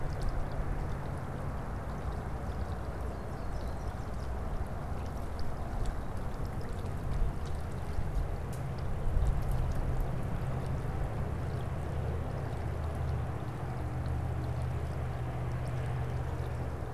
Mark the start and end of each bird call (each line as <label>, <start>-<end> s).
American Goldfinch (Spinus tristis), 2.8-4.5 s